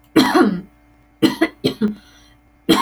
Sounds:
Sniff